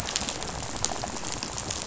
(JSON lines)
{"label": "biophony, rattle", "recorder": "SoundTrap 500"}